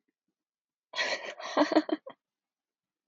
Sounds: Laughter